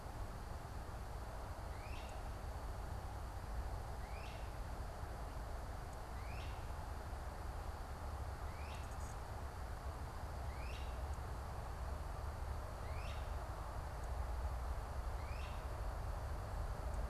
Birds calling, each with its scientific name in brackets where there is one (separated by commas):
Great Crested Flycatcher (Myiarchus crinitus)